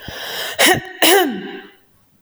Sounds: Throat clearing